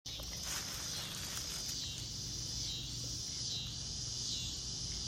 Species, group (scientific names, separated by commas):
Neotibicen winnemanna, Cicadidae